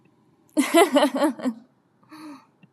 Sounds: Laughter